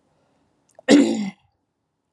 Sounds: Throat clearing